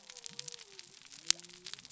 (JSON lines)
{"label": "biophony", "recorder": "SoundTrap 300"}